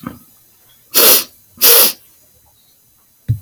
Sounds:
Sniff